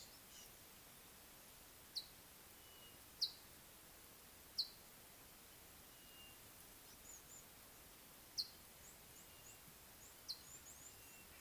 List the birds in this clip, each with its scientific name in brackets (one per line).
Scarlet-chested Sunbird (Chalcomitra senegalensis)
Sulphur-breasted Bushshrike (Telophorus sulfureopectus)